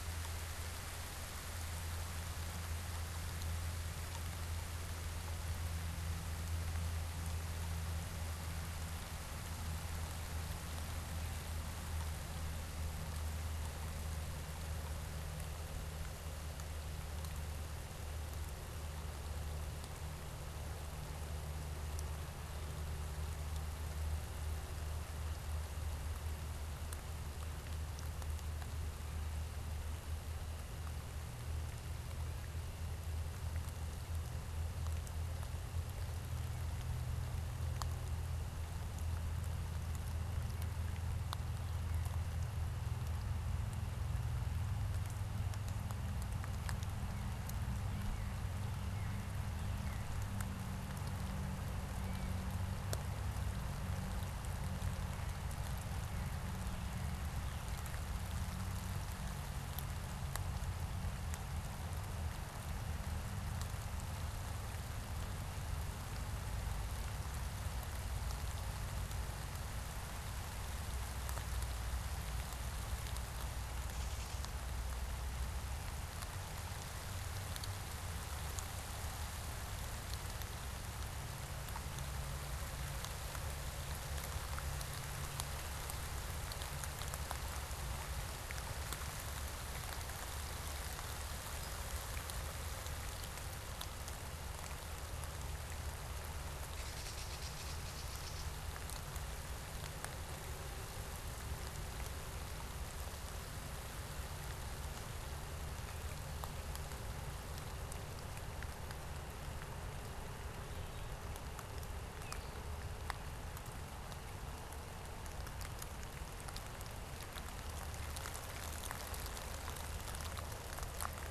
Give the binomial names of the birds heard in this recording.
Dumetella carolinensis, Catharus fuscescens